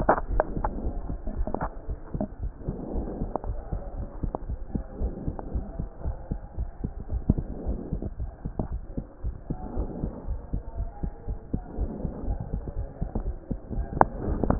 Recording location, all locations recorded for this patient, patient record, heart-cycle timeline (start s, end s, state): pulmonary valve (PV)
aortic valve (AV)+pulmonary valve (PV)+tricuspid valve (TV)+mitral valve (MV)
#Age: Child
#Sex: Female
#Height: 121.0 cm
#Weight: 19.3 kg
#Pregnancy status: False
#Murmur: Absent
#Murmur locations: nan
#Most audible location: nan
#Systolic murmur timing: nan
#Systolic murmur shape: nan
#Systolic murmur grading: nan
#Systolic murmur pitch: nan
#Systolic murmur quality: nan
#Diastolic murmur timing: nan
#Diastolic murmur shape: nan
#Diastolic murmur grading: nan
#Diastolic murmur pitch: nan
#Diastolic murmur quality: nan
#Outcome: Abnormal
#Campaign: 2014 screening campaign
0.00	1.80	unannotated
1.80	1.88	diastole
1.88	1.98	S1
1.98	2.16	systole
2.16	2.26	S2
2.26	2.42	diastole
2.42	2.52	S1
2.52	2.66	systole
2.66	2.76	S2
2.76	2.94	diastole
2.94	3.06	S1
3.06	3.20	systole
3.20	3.30	S2
3.30	3.46	diastole
3.46	3.58	S1
3.58	3.72	systole
3.72	3.82	S2
3.82	3.98	diastole
3.98	4.08	S1
4.08	4.22	systole
4.22	4.32	S2
4.32	4.48	diastole
4.48	4.58	S1
4.58	4.74	systole
4.74	4.84	S2
4.84	5.00	diastole
5.00	5.12	S1
5.12	5.26	systole
5.26	5.34	S2
5.34	5.54	diastole
5.54	5.66	S1
5.66	5.78	systole
5.78	5.88	S2
5.88	6.04	diastole
6.04	6.16	S1
6.16	6.30	systole
6.30	6.40	S2
6.40	6.58	diastole
6.58	6.68	S1
6.68	6.82	systole
6.82	6.92	S2
6.92	7.12	diastole
7.12	7.22	S1
7.22	7.37	systole
7.37	7.48	S2
7.48	7.66	diastole
7.66	7.78	S1
7.78	7.92	systole
7.92	8.02	S2
8.02	8.20	diastole
8.20	8.30	S1
8.30	8.44	systole
8.44	8.52	S2
8.52	8.70	diastole
8.70	8.82	S1
8.82	8.96	systole
8.96	9.04	S2
9.04	9.24	diastole
9.24	9.34	S1
9.34	9.48	systole
9.48	9.58	S2
9.58	9.76	diastole
9.76	9.88	S1
9.88	10.02	systole
10.02	10.12	S2
10.12	10.28	diastole
10.28	10.40	S1
10.40	10.52	systole
10.52	10.62	S2
10.62	10.78	diastole
10.78	10.90	S1
10.90	11.02	systole
11.02	11.12	S2
11.12	11.28	diastole
11.28	11.38	S1
11.38	11.52	systole
11.52	11.62	S2
11.62	11.78	diastole
11.78	11.90	S1
11.90	12.02	systole
12.02	12.12	S2
12.12	12.26	diastole
12.26	12.38	S1
12.38	12.52	systole
12.52	12.62	S2
12.62	12.78	diastole
12.78	12.88	S1
12.88	13.02	systole
13.02	13.08	S2
13.08	13.24	diastole
13.24	13.34	S1
13.34	13.50	systole
13.50	13.58	S2
13.58	13.74	diastole
13.74	13.86	S1
13.86	13.96	systole
13.96	14.08	S2
14.08	14.28	diastole
14.28	14.59	unannotated